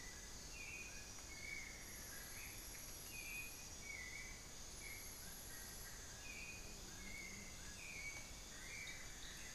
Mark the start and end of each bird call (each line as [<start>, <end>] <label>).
[0.00, 9.55] Dull-capped Attila (Attila bolivianus)
[0.00, 9.55] White-necked Thrush (Turdus albicollis)
[1.19, 2.69] Amazonian Barred-Woodcreeper (Dendrocolaptes certhia)
[8.29, 9.55] Amazonian Barred-Woodcreeper (Dendrocolaptes certhia)